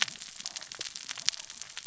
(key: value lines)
label: biophony, cascading saw
recorder: SoundTrap 600 or HydroMoth